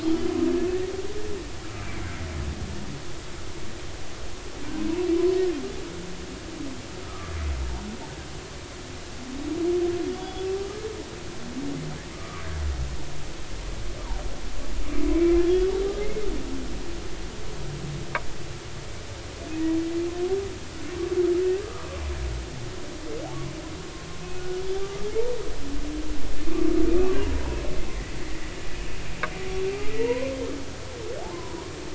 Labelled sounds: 10.2	10.5	humpback whale, 3.3 to 3.5 kHz
12.1	12.4	humpback whale, 1.1 to 1.3 kHz
16.0	16.3	humpback whale, 2.0 to 2.2 kHz
21.4	21.9	humpback whale, 1.1 to 1.7 kHz
27.1	27.4	humpback whale, 0.93 to 1.2 kHz
28.2	28.5	humpback whale, 1.8 to 2.1 kHz
30.0	30.3	humpback whale, 0.90 to 1.1 kHz
31.3	31.6	humpback whale, 0.90 to 1.1 kHz

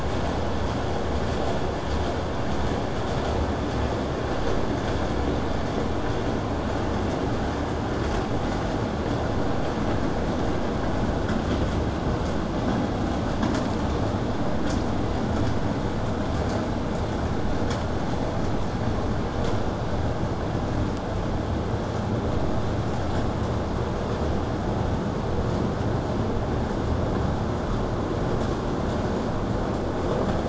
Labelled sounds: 24.3	25.3	vessel noise, 0.17 to 8.0 kHz

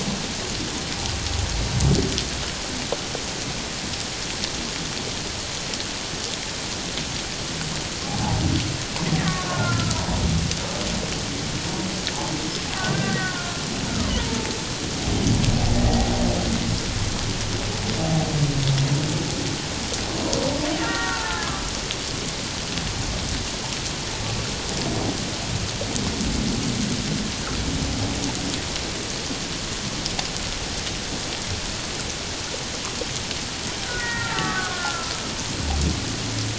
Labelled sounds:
9.2	10.0	killer whale, Bigg's (transient), 1.2 to 2.1 kHz
12.8	13.6	killer whale, Bigg's (transient), 1.0 to 2.0 kHz
14.1	14.6	killer whale, Bigg's (transient), 0.81 to 1.0 kHz
15.7	16.1	killer whale, Bigg's (transient), 1.8 to 2.0 kHz
20.8	21.6	killer whale, Bigg's (transient), 0.84 to 1.9 kHz
33.8	35.1	killer whale, Bigg's (transient), 0.84 to 2.0 kHz

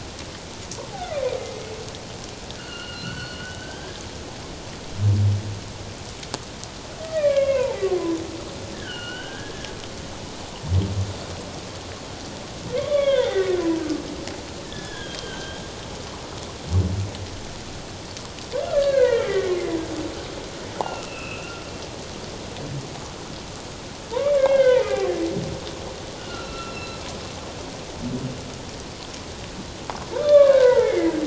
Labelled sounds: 2.6	4.0	humpback whale, 1.3 to 4.5 kHz
7.0	7.9	humpback whale, 0.78 to 2.9 kHz
8.7	9.7	humpback whale, 1.3 to 3.2 kHz
12.8	13.6	humpback whale, 0.88 to 3.6 kHz
14.6	15.6	humpback whale, 1.5 to 3.8 kHz
18.7	19.5	humpback whale, 1.1 to 3.3 kHz
20.8	21.5	humpback whale, 1.2 to 2.9 kHz
24.2	25.1	humpback whale, 1.4 to 3.3 kHz
26.2	27.0	humpback whale, 1.3 to 5.5 kHz
30.2	31.2	humpback whale, 0.84 to 3.6 kHz

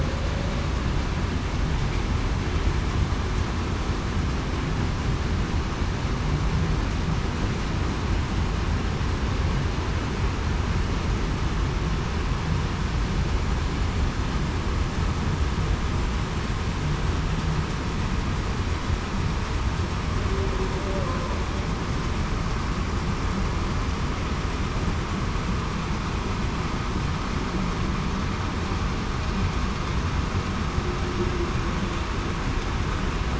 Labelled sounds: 20.7	21.2	humpback whale, 0.49 to 0.61 kHz

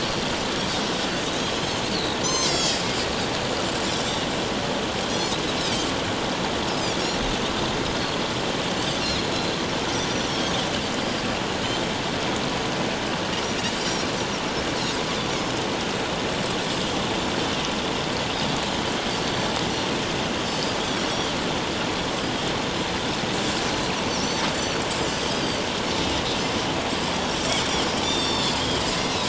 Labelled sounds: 1.2	2.8	Pacific white-sided dolphin, 3.1 to 7.6 kHz
5.1	5.9	Pacific white-sided dolphin, 4.5 to 5.5 kHz
9.0	9.6	Pacific white-sided dolphin, 3.7 to 4.4 kHz
13.8	14.1	Pacific white-sided dolphin, 5.4 to 5.8 kHz
15.4	15.6	Pacific white-sided dolphin, 4.9 to 5.3 kHz
19.2	19.5	Pacific white-sided dolphin, 4.3 to 4.6 kHz
20.4	20.8	Pacific white-sided dolphin, 4.7 to 5.3 kHz
21.1	21.3	Pacific white-sided dolphin, 5.4 to 6.0 kHz
24.5	24.8	Pacific white-sided dolphin, 4.4 to 4.6 kHz
25.3	25.6	Pacific white-sided dolphin, 4.5 to 5.0 kHz
28.0	29.2	Pacific white-sided dolphin, 2.9 to 5.8 kHz

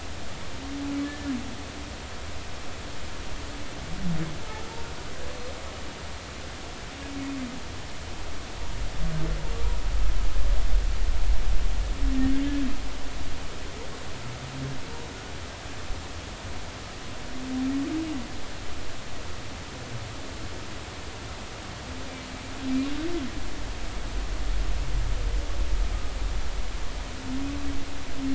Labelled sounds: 1.0	1.3	humpback whale, 1.6 to 1.8 kHz

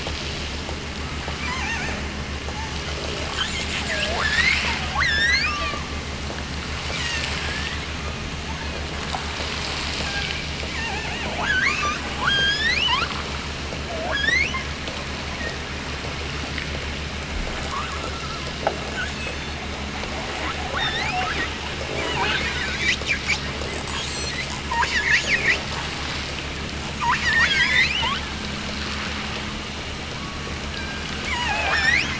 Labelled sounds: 1.3	2.2	killer whale, offshore, 0.48 to 7.6 kHz
3.2	5.9	killer whale, offshore, 0.23 to 8.0 kHz
6.7	7.9	killer whale, offshore, 1.4 to 7.6 kHz
10.0	13.2	killer whale, offshore, 0.43 to 8.0 kHz
13.9	14.7	killer whale, offshore, 0.43 to 8.0 kHz
17.6	18.1	killer whale, offshore, 0.84 to 2.9 kHz
18.8	19.7	killer whale, offshore, 1.0 to 8.0 kHz
20.7	21.4	killer whale, offshore, 1.4 to 6.8 kHz
22.0	22.9	killer whale, offshore, 0.73 to 6.1 kHz
23.8	25.7	killer whale, offshore, 0.75 to 8.0 kHz
26.9	28.7	killer whale, offshore, 0.66 to 7.3 kHz
30.1	32.1	killer whale, offshore, 0.32 to 8.0 kHz

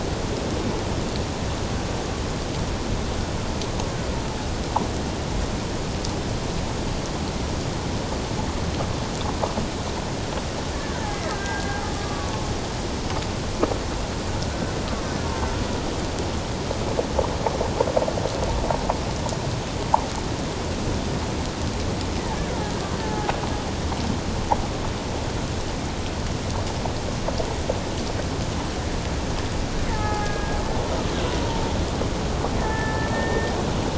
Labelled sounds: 10.7	12.3	killer whale, Bigg's (transient), 1.1 to 2.1 kHz
22.3	22.7	killer whale, Bigg's (transient), 1.3 to 1.8 kHz
23.0	23.3	killer whale, Bigg's (transient), 0.78 to 0.88 kHz
29.9	30.6	killer whale, Bigg's (transient), 0.78 to 2.1 kHz
31.4	31.7	killer whale, Bigg's (transient), 0.88 to 1.0 kHz
32.6	33.5	killer whale, Bigg's (transient), 1.7 to 1.9 kHz

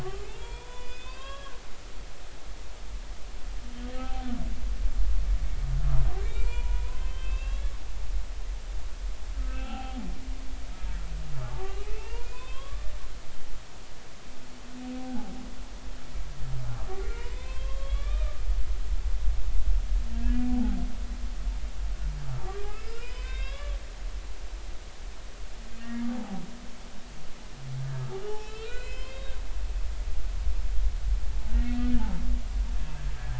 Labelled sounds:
0.0	1.6	humpback whale, 0.83 to 5.0 kHz
3.9	4.3	humpback whale, 0.80 to 0.83 kHz
6.2	7.7	humpback whale, 0.90 to 4.9 kHz
9.5	10.0	humpback whale, 0.80 to 2.9 kHz
11.4	12.9	humpback whale, 0.86 to 3.4 kHz
14.9	15.3	humpback whale, 0.80 to 0.93 kHz
17.1	18.4	humpback whale, 0.90 to 3.8 kHz
20.4	20.8	humpback whale, 0.80 to 0.90 kHz
22.4	23.8	humpback whale, 0.96 to 5.5 kHz
26.1	26.4	humpback whale, 0.80 to 0.90 kHz
28.3	29.4	humpback whale, 0.80 to 5.7 kHz
31.5	32.0	humpback whale, 1.8 to 3.1 kHz

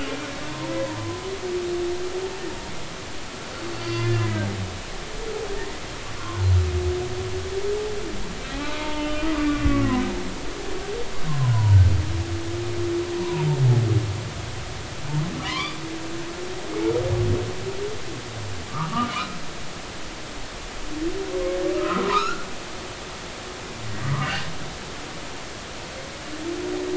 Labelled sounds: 0.5	1.2	humpback whale, 0.90 to 1.1 kHz
3.7	4.5	humpback whale, 0.99 to 4.9 kHz
6.2	6.5	humpback whale, 0.86 to 1.2 kHz
8.5	10.0	humpback whale, 0.80 to 3.1 kHz
11.3	11.8	humpback whale, 0.90 to 1.1 kHz
13.2	13.5	humpback whale, 0.86 to 1.1 kHz
15.4	15.8	humpback whale, 0.93 to 2.4 kHz
18.7	19.4	humpback whale, 0.90 to 2.5 kHz
21.8	22.5	humpback whale, 0.90 to 5.4 kHz
24.2	24.5	humpback whale, 2.6 to 2.9 kHz

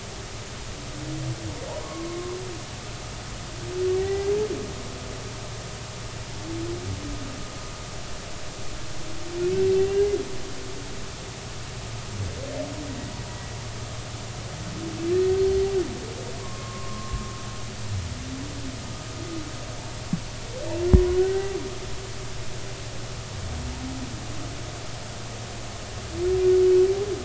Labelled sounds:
1.8	2.4	humpback whale, 0.96 to 1.2 kHz
3.9	4.3	humpback whale, 0.80 to 2.0 kHz
15.4	15.6	humpback whale, 4.2 to 4.3 kHz
16.4	17.3	humpback whale, 0.93 to 1.2 kHz
21.2	21.5	humpback whale, 1.4 to 1.6 kHz

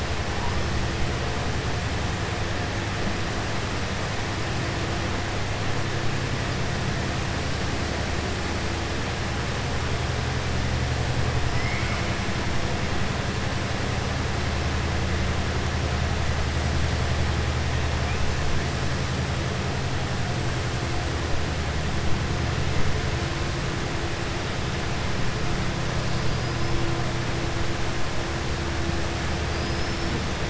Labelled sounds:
11.5	12.1	killer whale, southern resident, 1.2 to 3.2 kHz

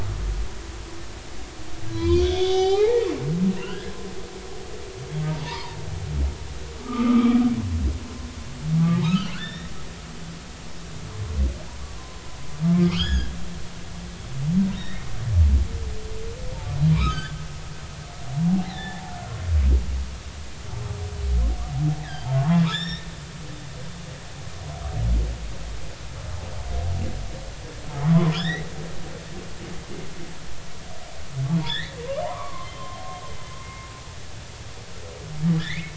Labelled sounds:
1.9	3.1	humpback whale, 0.80 to 6.6 kHz
3.6	3.9	humpback whale, 1.3 to 3.1 kHz
5.4	5.8	humpback whale, 0.86 to 1.2 kHz
6.8	7.4	humpback whale, 0.96 to 3.3 kHz
9.0	9.7	humpback whale, 1.2 to 5.7 kHz
12.0	12.2	humpback whale, 0.99 to 1.1 kHz
12.9	13.3	humpback whale, 1.1 to 6.9 kHz
14.8	15.1	humpback whale, 1.7 to 3.8 kHz
16.9	17.4	humpback whale, 0.90 to 6.6 kHz
18.5	19.4	humpback whale, 0.80 to 3.6 kHz
22.0	23.1	humpback whale, 0.99 to 5.7 kHz
28.1	28.7	humpback whale, 0.93 to 3.9 kHz
31.7	32.9	humpback whale, 0.86 to 4.1 kHz
33.6	33.9	humpback whale, 2.1 to 2.2 kHz
35.6	35.9	humpback whale, 1.6 to 2.7 kHz

